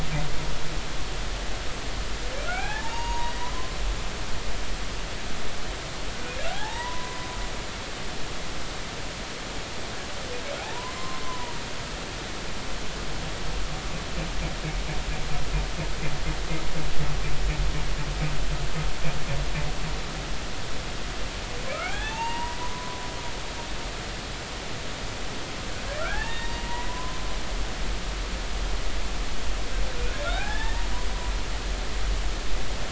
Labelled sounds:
2.4	3.8	humpback whale, 0.80 to 6.7 kHz
6.5	7.3	humpback whale, 0.80 to 2.0 kHz
10.6	11.6	humpback whale, 0.80 to 1.1 kHz
21.7	23.0	humpback whale, 0.80 to 6.6 kHz
26.0	27.2	humpback whale, 0.80 to 3.8 kHz
30.2	30.9	humpback whale, 0.80 to 3.7 kHz

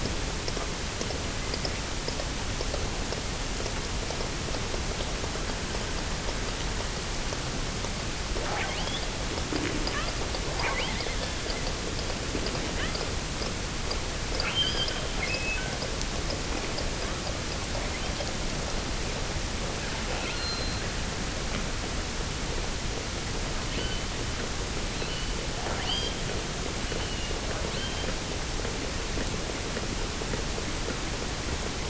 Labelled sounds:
8.2	9.1	killer whale, offshore, 0.32 to 3.8 kHz
9.8	10.2	killer whale, offshore, 0.52 to 3.6 kHz
10.5	11.1	killer whale, offshore, 0.59 to 3.7 kHz
12.6	13.2	killer whale, offshore, 0.73 to 3.7 kHz
14.3	15.8	killer whale, offshore, 1.1 to 3.5 kHz
20.2	21.1	killer whale, offshore, 1.2 to 4.5 kHz
23.7	24.2	killer whale, offshore, 1.3 to 4.8 kHz
24.8	26.3	killer whale, offshore, 1.2 to 6.7 kHz
26.8	28.2	killer whale, offshore, 1.3 to 4.9 kHz

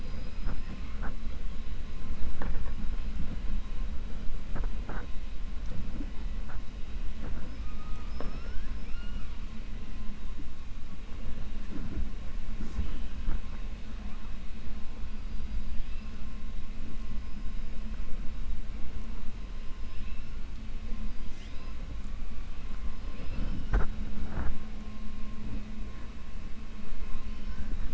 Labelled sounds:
7.9	9.3	killer whale, 1.3 to 6.0 kHz
15.3	16.1	killer whale, 2.0 to 5.5 kHz
19.8	20.2	killer whale, 2.5 to 5.2 kHz

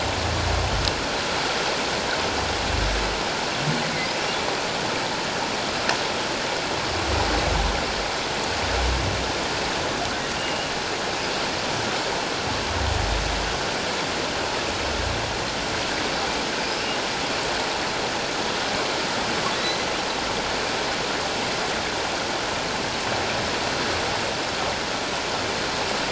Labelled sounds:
10.4	10.7	humpback whale, 2.7 to 3.0 kHz

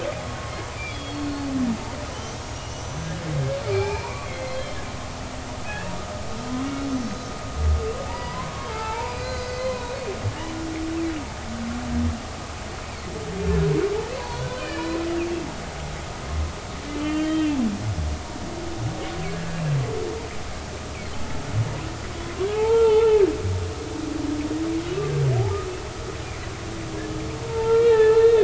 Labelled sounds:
0.9	3.2	humpback whale, 2.8 to 6.7 kHz
3.7	4.8	humpback whale, 0.80 to 3.3 kHz
5.6	5.9	humpback whale, 2.5 to 2.8 kHz
6.9	9.9	humpback whale, 0.83 to 5.0 kHz
14.2	14.9	humpback whale, 0.80 to 4.5 kHz
17.0	17.5	humpback whale, 1.8 to 3.2 kHz
19.3	19.6	humpback whale, 1.6 to 1.8 kHz
22.5	23.2	humpback whale, 0.80 to 3.7 kHz
27.4	28.4	humpback whale, 0.83 to 3.7 kHz

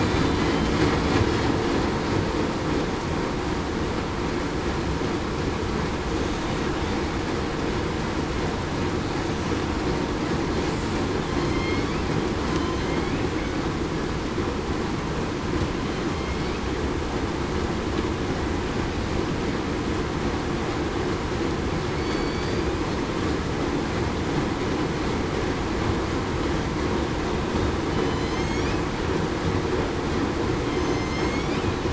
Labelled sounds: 0.4	0.7	killer whale, southern resident, 3.0 to 3.1 kHz
11.4	11.8	killer whale, southern resident, 3.1 to 3.3 kHz
12.5	12.9	killer whale, southern resident, 3.0 to 3.1 kHz
21.9	22.5	killer whale, southern resident, 2.2 to 2.3 kHz
27.9	28.5	killer whale, southern resident, 3.0 to 3.2 kHz
30.7	31.4	killer whale, southern resident, 4.1 to 6.7 kHz

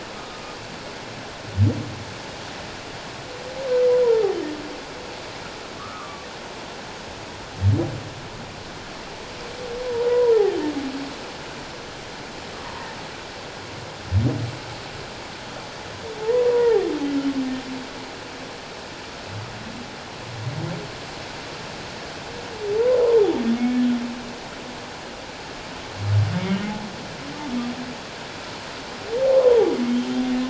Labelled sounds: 0.2	0.4	humpback whale, 1.2 to 1.3 kHz
5.8	6.3	humpback whale, 1.1 to 1.5 kHz
10.1	10.5	humpback whale, 0.78 to 1.1 kHz
16.2	16.8	humpback whale, 0.78 to 1.0 kHz
23.6	23.8	humpback whale, 2.1 to 2.3 kHz
29.4	29.7	humpback whale, 0.78 to 1.1 kHz

